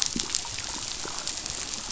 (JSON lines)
{"label": "biophony, chatter", "recorder": "SoundTrap 500"}